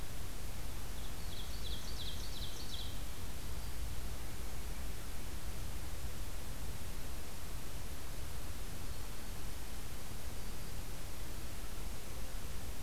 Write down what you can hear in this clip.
Ovenbird